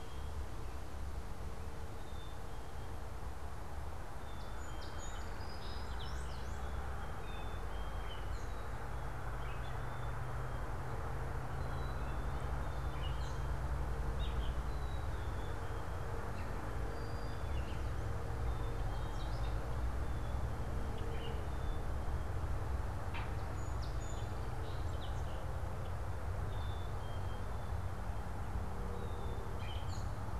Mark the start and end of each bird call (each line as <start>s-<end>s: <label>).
0.0s-11.2s: Gray Catbird (Dumetella carolinensis)
0.0s-12.5s: Black-capped Chickadee (Poecile atricapillus)
4.1s-6.7s: Song Sparrow (Melospiza melodia)
5.4s-6.8s: Brown-headed Cowbird (Molothrus ater)
12.8s-30.4s: Gray Catbird (Dumetella carolinensis)
14.6s-30.4s: Black-capped Chickadee (Poecile atricapillus)
16.7s-18.2s: Brown-headed Cowbird (Molothrus ater)
23.1s-25.7s: Song Sparrow (Melospiza melodia)